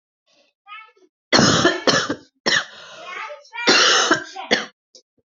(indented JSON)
{
  "expert_labels": [
    {
      "quality": "good",
      "cough_type": "unknown",
      "dyspnea": false,
      "wheezing": false,
      "stridor": false,
      "choking": false,
      "congestion": false,
      "nothing": true,
      "diagnosis": "lower respiratory tract infection",
      "severity": "mild"
    }
  ],
  "age": 34,
  "gender": "female",
  "respiratory_condition": true,
  "fever_muscle_pain": false,
  "status": "symptomatic"
}